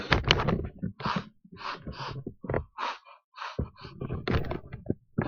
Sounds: Sniff